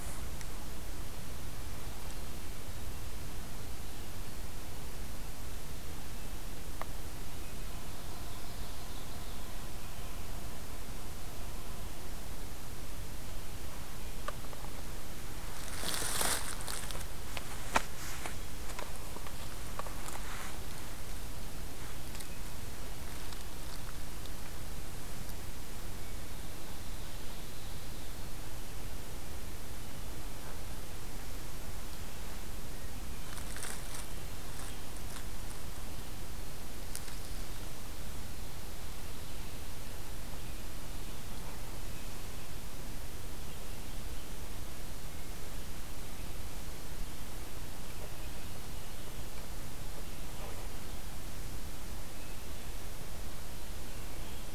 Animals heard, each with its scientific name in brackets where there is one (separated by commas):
Ovenbird (Seiurus aurocapilla)